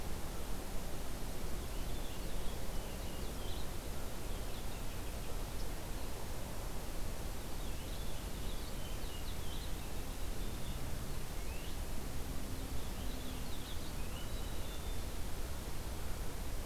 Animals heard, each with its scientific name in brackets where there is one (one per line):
Black-capped Chickadee (Poecile atricapillus)
Purple Finch (Haemorhous purpureus)